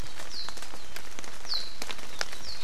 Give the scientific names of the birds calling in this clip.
Himatione sanguinea